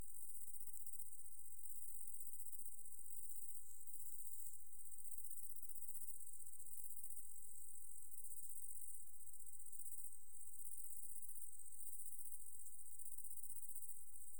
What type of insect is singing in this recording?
orthopteran